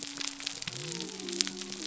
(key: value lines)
label: biophony
recorder: SoundTrap 300